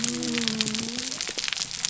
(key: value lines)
label: biophony
recorder: SoundTrap 300